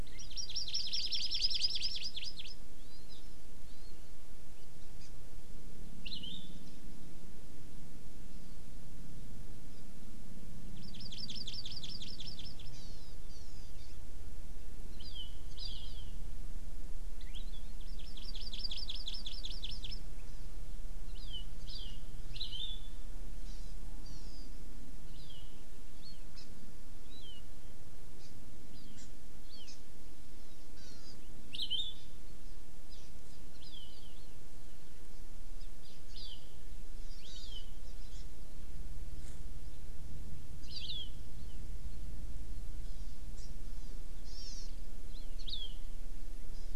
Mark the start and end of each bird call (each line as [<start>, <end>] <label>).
[0.00, 3.20] Hawaii Amakihi (Chlorodrepanis virens)
[3.60, 3.90] Hawaii Amakihi (Chlorodrepanis virens)
[5.00, 5.10] Hawaii Amakihi (Chlorodrepanis virens)
[6.00, 6.60] Palila (Loxioides bailleui)
[9.70, 9.80] Hawaii Amakihi (Chlorodrepanis virens)
[10.80, 13.90] Hawaii Amakihi (Chlorodrepanis virens)
[15.00, 16.10] Hawaii Amakihi (Chlorodrepanis virens)
[17.20, 17.70] Palila (Loxioides bailleui)
[17.80, 20.00] Hawaii Amakihi (Chlorodrepanis virens)
[21.10, 22.00] Hawaii Amakihi (Chlorodrepanis virens)
[22.30, 23.10] Hawaii Amakihi (Chlorodrepanis virens)
[23.40, 24.50] Hawaii Amakihi (Chlorodrepanis virens)
[25.10, 25.50] Hawaii Amakihi (Chlorodrepanis virens)
[26.30, 26.50] Hawaii Amakihi (Chlorodrepanis virens)
[27.10, 27.40] Hawaii Amakihi (Chlorodrepanis virens)
[28.20, 28.30] Hawaii Amakihi (Chlorodrepanis virens)
[28.70, 29.10] Hawaii Amakihi (Chlorodrepanis virens)
[29.50, 29.80] Hawaii Amakihi (Chlorodrepanis virens)
[30.70, 31.20] Hawaii Amakihi (Chlorodrepanis virens)
[31.50, 32.20] Palila (Loxioides bailleui)
[32.90, 33.10] Hawaii Amakihi (Chlorodrepanis virens)
[33.60, 33.90] Hawaii Amakihi (Chlorodrepanis virens)
[35.80, 36.40] Hawaii Amakihi (Chlorodrepanis virens)
[37.20, 37.70] Hawaii Amakihi (Chlorodrepanis virens)
[38.10, 38.30] Hawaii Amakihi (Chlorodrepanis virens)
[40.60, 41.10] Hawaii Amakihi (Chlorodrepanis virens)
[42.80, 44.70] Hawaii Amakihi (Chlorodrepanis virens)
[45.40, 45.80] Hawaii Amakihi (Chlorodrepanis virens)